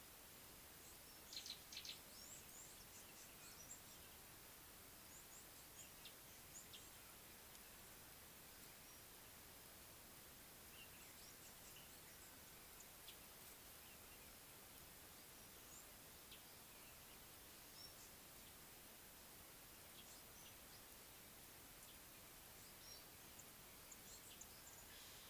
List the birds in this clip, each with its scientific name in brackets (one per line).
Red-cheeked Cordonbleu (Uraeginthus bengalus)
Gray-backed Camaroptera (Camaroptera brevicaudata)